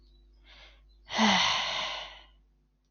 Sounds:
Sigh